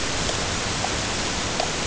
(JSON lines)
{"label": "ambient", "recorder": "HydroMoth"}